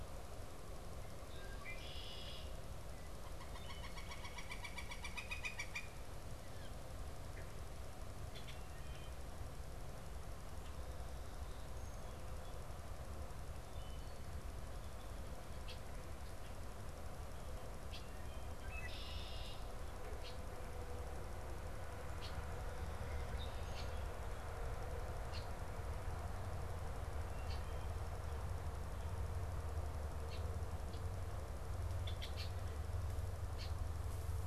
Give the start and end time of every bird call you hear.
[1.20, 2.60] Red-winged Blackbird (Agelaius phoeniceus)
[2.80, 6.20] Northern Flicker (Colaptes auratus)
[6.50, 6.80] Northern Flicker (Colaptes auratus)
[8.00, 8.70] Red-winged Blackbird (Agelaius phoeniceus)
[8.80, 9.40] Wood Thrush (Hylocichla mustelina)
[13.60, 14.30] Wood Thrush (Hylocichla mustelina)
[15.30, 34.47] Red-winged Blackbird (Agelaius phoeniceus)
[18.10, 18.60] Wood Thrush (Hylocichla mustelina)

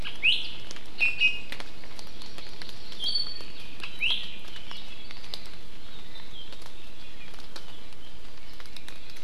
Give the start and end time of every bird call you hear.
[0.00, 0.40] Iiwi (Drepanis coccinea)
[1.00, 1.60] Iiwi (Drepanis coccinea)
[1.80, 3.10] Hawaii Amakihi (Chlorodrepanis virens)
[3.00, 3.60] Iiwi (Drepanis coccinea)
[4.00, 4.20] Iiwi (Drepanis coccinea)

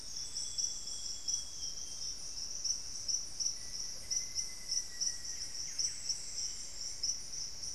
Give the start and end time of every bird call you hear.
[0.00, 2.30] Amazonian Grosbeak (Cyanoloxia rothschildii)
[3.40, 5.80] Black-faced Antthrush (Formicarius analis)
[3.80, 4.30] Amazonian Motmot (Momotus momota)
[5.30, 7.70] Cinnamon-throated Woodcreeper (Dendrexetastes rufigula)
[5.40, 6.90] Buff-breasted Wren (Cantorchilus leucotis)

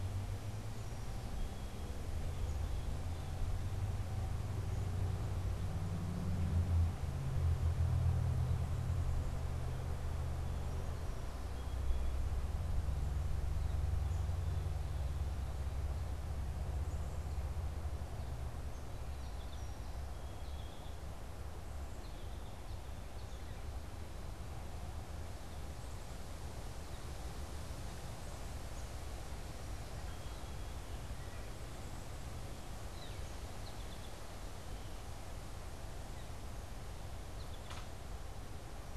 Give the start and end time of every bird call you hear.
[0.57, 2.17] Song Sparrow (Melospiza melodia)
[2.27, 3.87] Blue Jay (Cyanocitta cristata)
[10.87, 12.17] Song Sparrow (Melospiza melodia)
[18.67, 21.07] Song Sparrow (Melospiza melodia)
[21.77, 27.07] American Goldfinch (Spinus tristis)
[29.47, 31.07] Song Sparrow (Melospiza melodia)
[31.57, 32.37] Black-capped Chickadee (Poecile atricapillus)
[32.87, 34.47] Song Sparrow (Melospiza melodia)
[34.57, 35.27] Blue Jay (Cyanocitta cristata)
[37.07, 37.87] American Goldfinch (Spinus tristis)

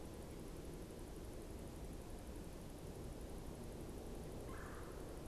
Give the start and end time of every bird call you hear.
[4.26, 5.26] Red-bellied Woodpecker (Melanerpes carolinus)

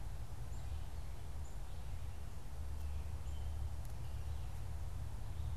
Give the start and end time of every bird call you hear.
[0.00, 5.57] Black-capped Chickadee (Poecile atricapillus)
[0.00, 5.57] Red-eyed Vireo (Vireo olivaceus)

